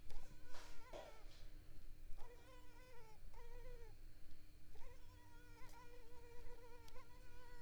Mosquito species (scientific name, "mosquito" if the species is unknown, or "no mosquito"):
Culex pipiens complex